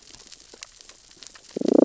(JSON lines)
{"label": "biophony, damselfish", "recorder": "SoundTrap 600 or HydroMoth"}